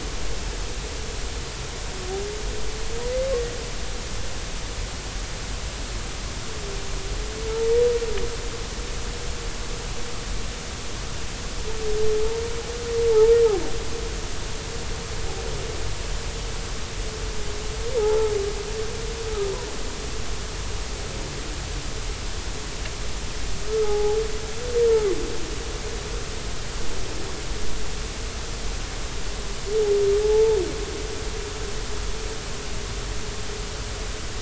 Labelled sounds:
18.0	18.3	humpback whale, 0.80 to 1.4 kHz
23.7	24.2	humpback whale, 0.80 to 1.3 kHz
30.2	30.6	humpback whale, 0.80 to 0.93 kHz

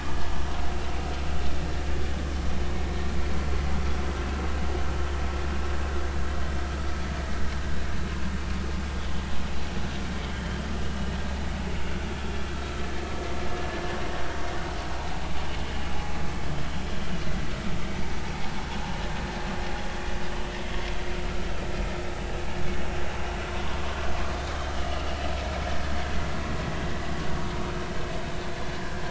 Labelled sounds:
10.8	11.2	vessel noise, 2.8 to 3.0 kHz
23.5	23.8	vessel noise, 0.99 to 1.2 kHz
24.8	25.1	vessel noise, 2.8 to 3.0 kHz

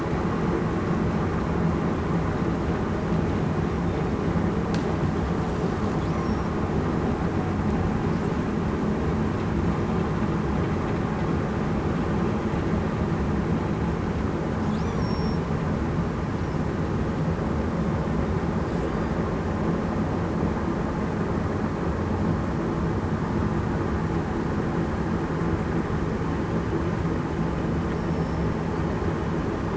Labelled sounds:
14.9	15.4	killer whale, southern resident, 5.4 to 5.8 kHz
28.1	28.5	killer whale, southern resident, 5.3 to 5.4 kHz

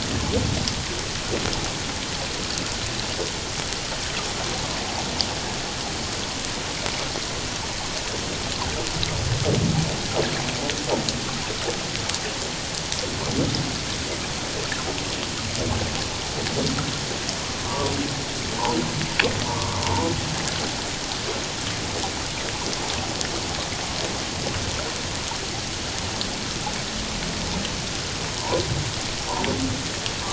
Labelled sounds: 17.6	17.9	humpback whale, 0.88 to 1.0 kHz
19.5	20.1	humpback whale, 0.84 to 1.2 kHz

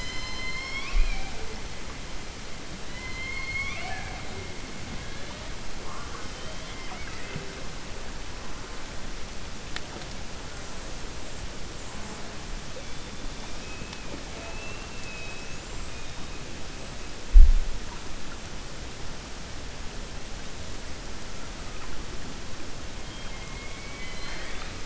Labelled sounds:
2.8	4.2	killer whale, 0.69 to 5.9 kHz
23.0	24.7	killer whale, 0.73 to 4.3 kHz

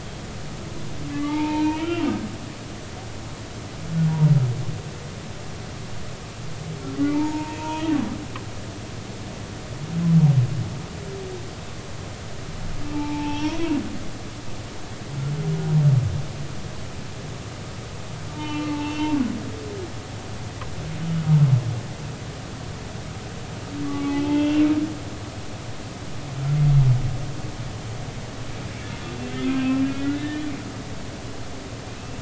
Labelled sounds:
1.1	2.1	humpback whale, 0.83 to 3.2 kHz
6.9	7.9	humpback whale, 0.83 to 3.0 kHz
12.9	13.7	humpback whale, 0.83 to 5.7 kHz
18.3	19.2	humpback whale, 0.83 to 3.1 kHz
19.7	20.0	humpback whale, 0.83 to 0.99 kHz
23.8	24.7	humpback whale, 0.80 to 3.2 kHz
29.6	30.4	humpback whale, 1.7 to 2.8 kHz
31.9	32.2	humpback whale, 2.5 to 2.7 kHz

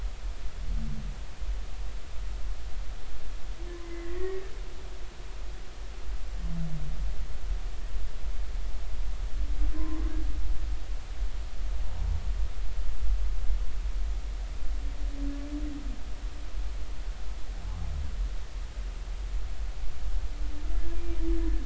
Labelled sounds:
3.8	4.4	humpback whale, 1.8 to 2.1 kHz
9.7	10.0	humpback whale, 0.93 to 1.1 kHz

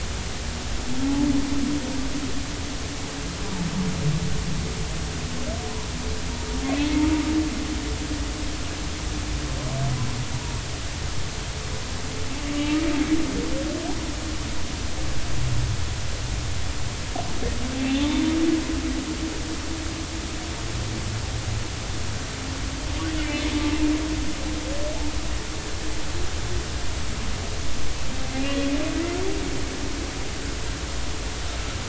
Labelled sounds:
1.0	1.3	humpback whale, 0.80 to 0.96 kHz
17.7	18.2	humpback whale, 0.83 to 2.8 kHz
23.2	23.4	humpback whale, 2.0 to 2.2 kHz

